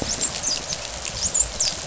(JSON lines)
{"label": "biophony, dolphin", "recorder": "SoundTrap 500"}